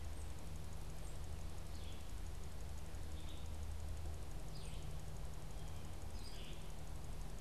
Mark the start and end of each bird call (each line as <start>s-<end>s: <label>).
0.0s-1.3s: unidentified bird
1.5s-2.2s: Red-eyed Vireo (Vireo olivaceus)
3.0s-6.9s: Red-eyed Vireo (Vireo olivaceus)
4.4s-5.0s: unidentified bird